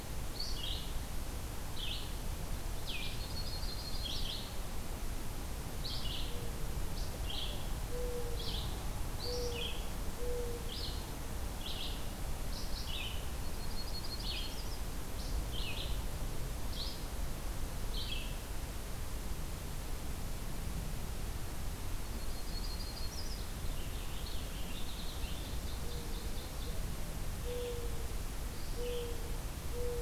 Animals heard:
Red-eyed Vireo (Vireo olivaceus), Mourning Dove (Zenaida macroura), Yellow-rumped Warbler (Setophaga coronata), Purple Finch (Haemorhous purpureus), Ovenbird (Seiurus aurocapilla)

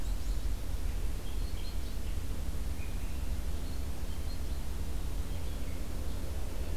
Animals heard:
Black-capped Chickadee (Poecile atricapillus), Red-eyed Vireo (Vireo olivaceus)

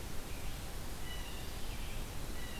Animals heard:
Blue Jay (Cyanocitta cristata), Red-eyed Vireo (Vireo olivaceus)

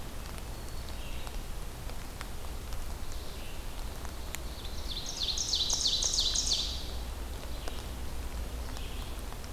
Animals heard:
Red-eyed Vireo (Vireo olivaceus), Black-capped Chickadee (Poecile atricapillus), Ovenbird (Seiurus aurocapilla)

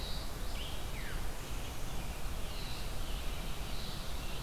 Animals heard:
Veery (Catharus fuscescens)

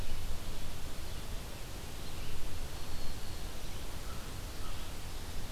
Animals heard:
American Crow (Corvus brachyrhynchos), Red-eyed Vireo (Vireo olivaceus), Black-throated Green Warbler (Setophaga virens)

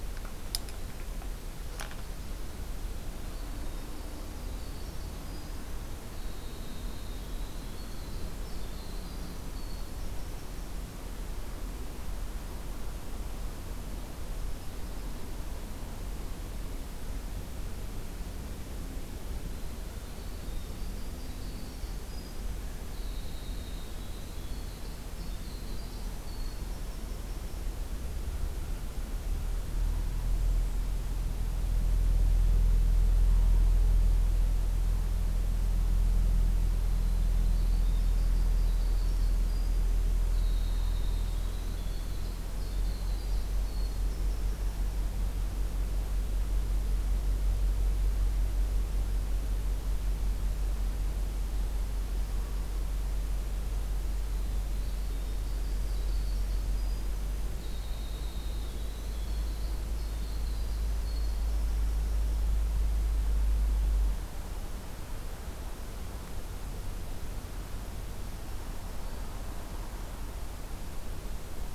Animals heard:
Winter Wren (Troglodytes hiemalis), Black-throated Green Warbler (Setophaga virens)

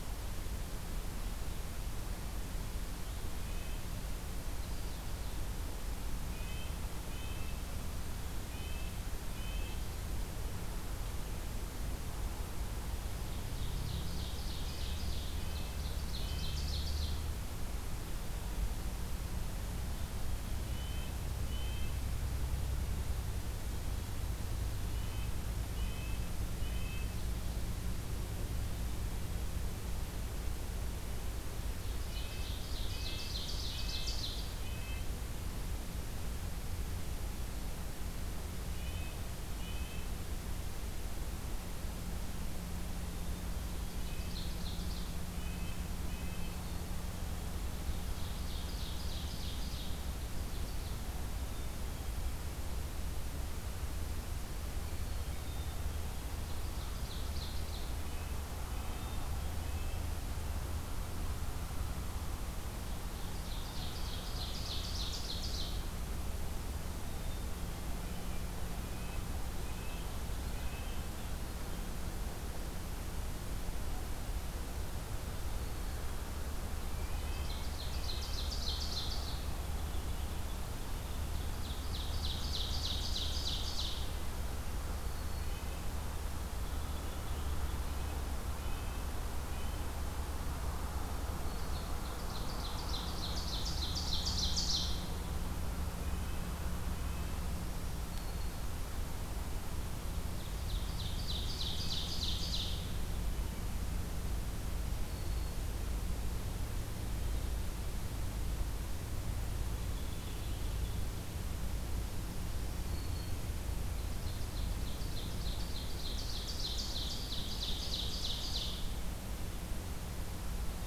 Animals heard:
American Robin (Turdus migratorius), Black-capped Chickadee (Poecile atricapillus), Red-breasted Nuthatch (Sitta canadensis), Ovenbird (Seiurus aurocapilla), Black-throated Green Warbler (Setophaga virens)

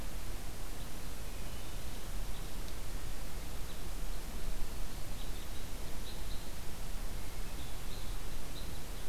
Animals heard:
Hermit Thrush (Catharus guttatus), Red Crossbill (Loxia curvirostra)

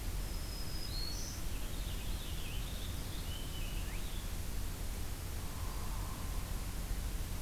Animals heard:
Hairy Woodpecker (Dryobates villosus), Black-throated Green Warbler (Setophaga virens), Purple Finch (Haemorhous purpureus)

